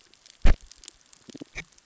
{"label": "biophony, damselfish", "recorder": "SoundTrap 600 or HydroMoth"}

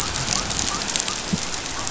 {"label": "biophony", "recorder": "SoundTrap 500"}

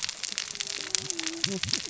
{"label": "biophony, cascading saw", "recorder": "SoundTrap 600 or HydroMoth"}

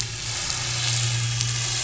{"label": "anthrophony, boat engine", "recorder": "SoundTrap 500"}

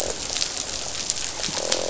{"label": "biophony, croak", "recorder": "SoundTrap 500"}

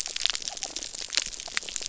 {"label": "biophony", "recorder": "SoundTrap 300"}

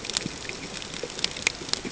{"label": "ambient", "recorder": "HydroMoth"}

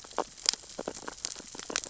{"label": "biophony, sea urchins (Echinidae)", "recorder": "SoundTrap 600 or HydroMoth"}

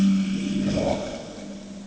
{"label": "anthrophony, boat engine", "recorder": "HydroMoth"}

